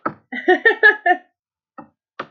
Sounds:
Laughter